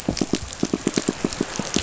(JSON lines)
{"label": "biophony, pulse", "recorder": "SoundTrap 500"}